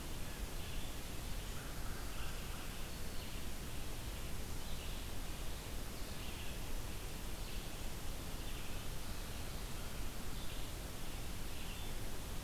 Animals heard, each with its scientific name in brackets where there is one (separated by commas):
Red-eyed Vireo (Vireo olivaceus), American Robin (Turdus migratorius)